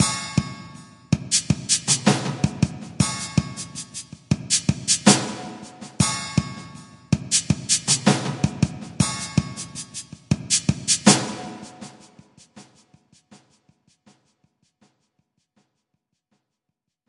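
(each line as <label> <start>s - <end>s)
A rhythmical sound from a hi-hat cymbal. 0.0s - 11.0s
A rhythmic sound from a snare drum. 0.0s - 11.6s
A rhythmic drum sound. 0.0s - 11.7s
Fading hi-hat cymbal sound. 11.6s - 17.1s
Snares slowly fading away. 11.6s - 17.1s
Drums slowly fading away. 11.6s - 17.1s
Kicks slowly fading away. 11.6s - 17.1s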